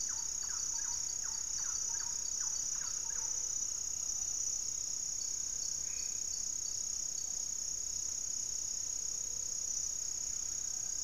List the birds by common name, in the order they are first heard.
Thrush-like Wren, Gray-fronted Dove, unidentified bird, Little Tinamou, Black-faced Antthrush